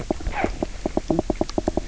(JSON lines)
{"label": "biophony, knock croak", "recorder": "SoundTrap 300"}